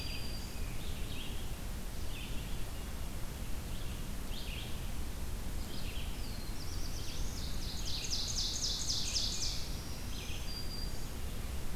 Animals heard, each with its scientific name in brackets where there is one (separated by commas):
Black-throated Green Warbler (Setophaga virens), Tufted Titmouse (Baeolophus bicolor), Red-eyed Vireo (Vireo olivaceus), Black-throated Blue Warbler (Setophaga caerulescens), Ovenbird (Seiurus aurocapilla)